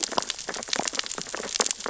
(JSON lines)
{"label": "biophony, sea urchins (Echinidae)", "recorder": "SoundTrap 600 or HydroMoth"}